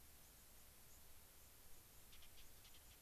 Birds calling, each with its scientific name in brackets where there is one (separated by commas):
White-crowned Sparrow (Zonotrichia leucophrys)